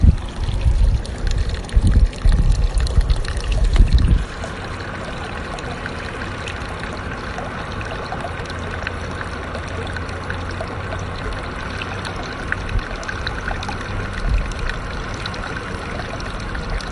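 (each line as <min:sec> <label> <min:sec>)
0:00.0 A continuous, flowing water sound. 0:16.9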